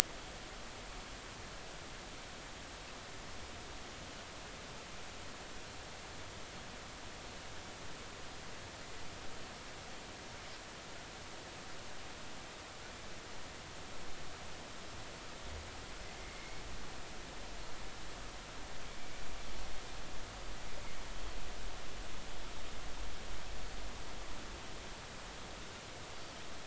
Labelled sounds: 16.2	16.6	Pacific white-sided dolphin, 2.0 to 2.3 kHz

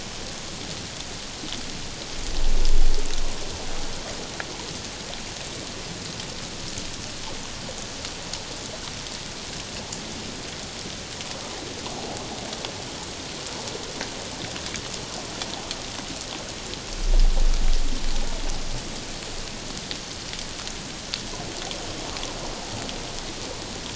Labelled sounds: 12.0	12.2	water noise, 0.78 to 0.88 kHz

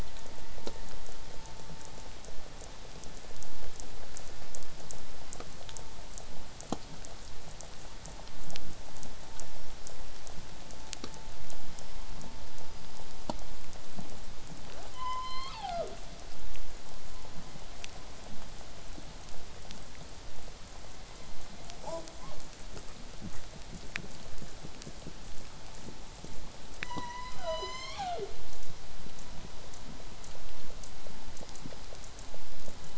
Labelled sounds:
3.4	6.7	killer whale, southern resident, 4.7 to 8.0 kHz
11.6	12.2	killer whale, southern resident, 2.9 to 5.4 kHz
14.9	16.1	killer whale, southern resident, call S01, 0.19 to 8.0 kHz
21.8	22.1	killer whale, southern resident, J pod, call S05, 0.19 to 8.0 kHz
22.2	22.4	killer whale, southern resident, 0.35 to 1.3 kHz
26.8	28.4	killer whale, southern resident, call S01, 0.12 to 8.0 kHz

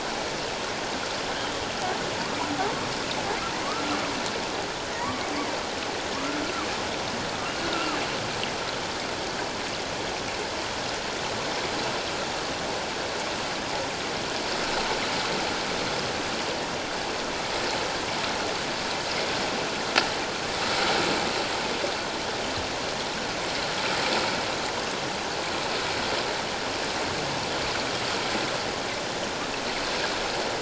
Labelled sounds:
7.6	8.0	killer whale, 1.1 to 1.5 kHz

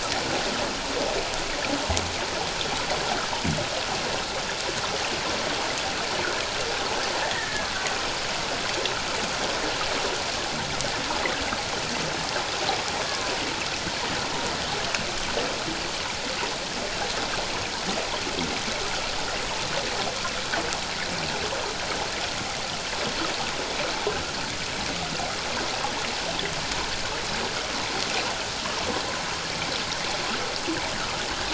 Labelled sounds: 7.2	7.7	killer whale, Bigg's (transient), 1.6 to 2.0 kHz
13.0	13.3	killer whale, Bigg's (transient), 0.97 to 1.2 kHz

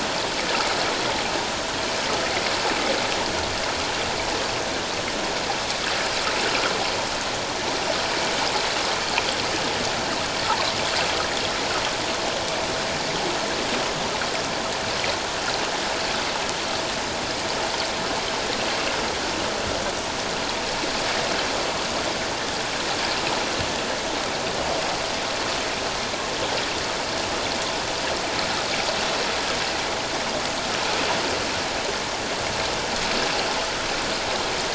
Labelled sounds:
10.5	10.8	water noise, 0.81 to 1.2 kHz

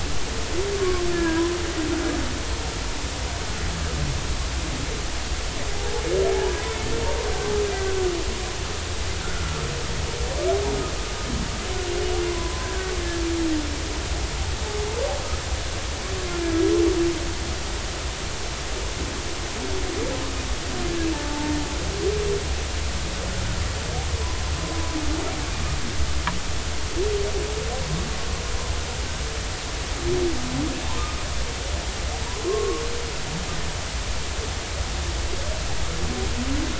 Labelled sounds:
0.8	1.4	humpback whale, 1.0 to 1.8 kHz
6.3	6.7	humpback whale, 0.80 to 1.1 kHz
9.2	9.6	humpback whale, 1.3 to 1.6 kHz
12.2	12.9	humpback whale, 0.96 to 1.7 kHz
21.1	21.5	humpback whale, 0.83 to 0.96 kHz
24.2	24.9	humpback whale, 0.93 to 1.1 kHz
30.8	31.2	humpback whale, 0.86 to 1.3 kHz
32.4	32.8	humpback whale, 1.0 to 1.2 kHz

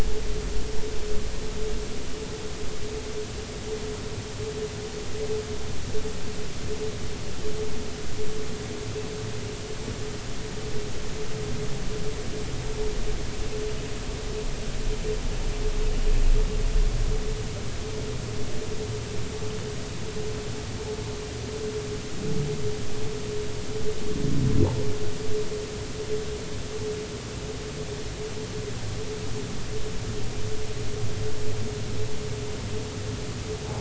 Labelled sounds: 24.6	24.8	humpback whale, 0.80 to 1.1 kHz

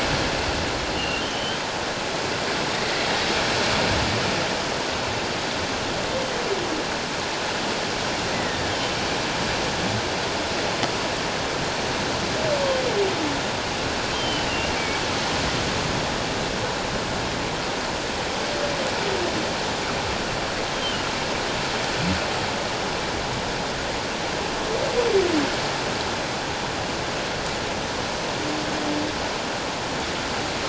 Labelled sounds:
1.0	1.6	humpback whale, 2.7 to 3.2 kHz
8.3	9.0	humpback whale, 1.8 to 3.3 kHz
14.1	14.5	humpback whale, 2.9 to 3.2 kHz

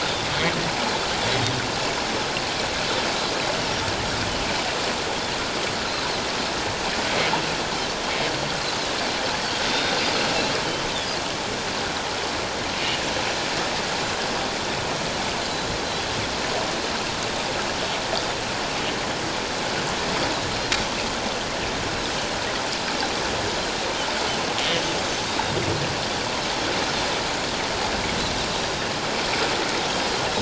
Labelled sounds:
9.7	10.0	Pacific white-sided dolphin, 3.6 to 3.8 kHz
10.8	11.1	Pacific white-sided dolphin, 3.3 to 3.8 kHz
25.3	25.5	Pacific white-sided dolphin, 3.6 to 3.8 kHz

